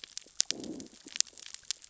{"label": "biophony, growl", "recorder": "SoundTrap 600 or HydroMoth"}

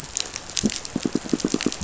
{"label": "biophony, pulse", "recorder": "SoundTrap 500"}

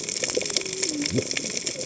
{"label": "biophony, cascading saw", "recorder": "HydroMoth"}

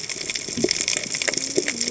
{"label": "biophony, cascading saw", "recorder": "HydroMoth"}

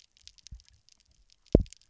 {"label": "biophony, double pulse", "recorder": "SoundTrap 300"}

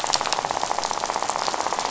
{"label": "biophony, rattle", "recorder": "SoundTrap 500"}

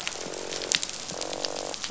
{"label": "biophony, croak", "recorder": "SoundTrap 500"}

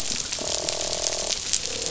{"label": "biophony, croak", "recorder": "SoundTrap 500"}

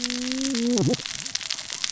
{"label": "biophony, cascading saw", "recorder": "SoundTrap 600 or HydroMoth"}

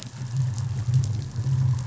{"label": "anthrophony, boat engine", "recorder": "SoundTrap 500"}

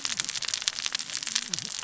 {"label": "biophony, cascading saw", "recorder": "SoundTrap 600 or HydroMoth"}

